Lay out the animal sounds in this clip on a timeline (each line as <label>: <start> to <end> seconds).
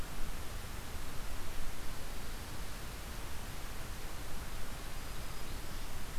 Black-throated Green Warbler (Setophaga virens): 4.5 to 6.2 seconds